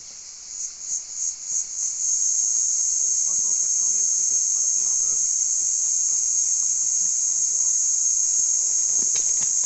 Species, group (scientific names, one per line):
Tibicina haematodes
Cicadidae